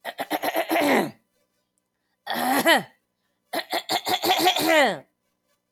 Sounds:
Throat clearing